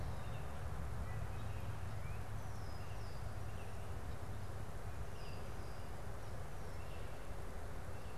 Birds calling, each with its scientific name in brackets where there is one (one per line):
Red-winged Blackbird (Agelaius phoeniceus)